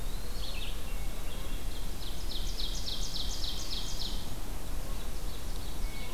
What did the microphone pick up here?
Eastern Wood-Pewee, Red-eyed Vireo, Hermit Thrush, Ovenbird